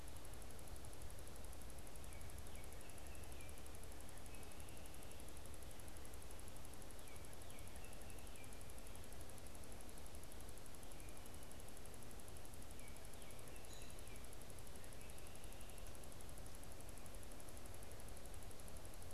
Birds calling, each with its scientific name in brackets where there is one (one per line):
American Robin (Turdus migratorius)
Baltimore Oriole (Icterus galbula)